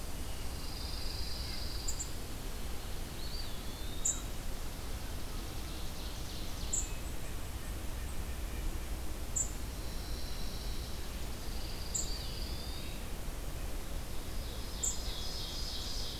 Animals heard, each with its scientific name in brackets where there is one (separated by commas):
Ovenbird (Seiurus aurocapilla), unidentified call, Red-breasted Nuthatch (Sitta canadensis), Eastern Wood-Pewee (Contopus virens), Pine Warbler (Setophaga pinus)